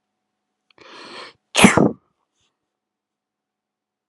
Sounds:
Sneeze